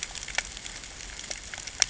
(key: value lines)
label: ambient
recorder: HydroMoth